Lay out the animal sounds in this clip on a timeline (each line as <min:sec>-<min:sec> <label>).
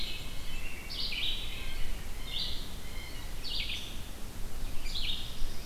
0:00.0-0:00.8 Black-capped Chickadee (Poecile atricapillus)
0:00.0-0:02.0 American Robin (Turdus migratorius)
0:00.0-0:05.7 Red-eyed Vireo (Vireo olivaceus)
0:01.4-0:03.4 Blue Jay (Cyanocitta cristata)
0:04.7-0:05.7 Black-throated Blue Warbler (Setophaga caerulescens)